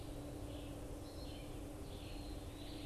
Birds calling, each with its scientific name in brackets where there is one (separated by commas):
Eastern Wood-Pewee (Contopus virens), Red-eyed Vireo (Vireo olivaceus), Veery (Catharus fuscescens)